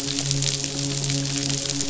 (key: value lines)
label: biophony, midshipman
recorder: SoundTrap 500